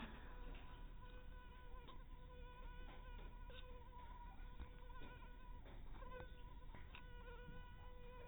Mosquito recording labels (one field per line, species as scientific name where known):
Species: mosquito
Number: one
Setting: cup